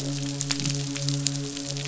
{"label": "biophony, midshipman", "recorder": "SoundTrap 500"}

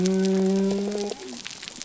{"label": "biophony", "recorder": "SoundTrap 300"}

